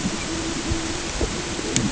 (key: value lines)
label: ambient
recorder: HydroMoth